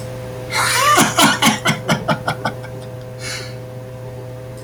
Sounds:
Laughter